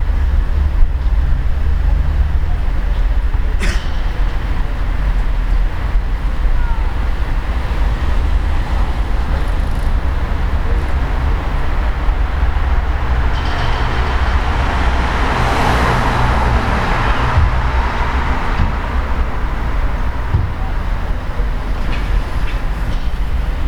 Is there traffic?
yes